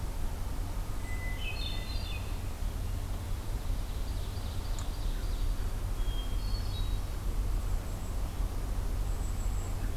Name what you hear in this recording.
Hermit Thrush, Ovenbird, Golden-crowned Kinglet